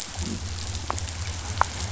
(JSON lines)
{"label": "biophony", "recorder": "SoundTrap 500"}